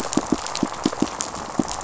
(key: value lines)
label: biophony, pulse
recorder: SoundTrap 500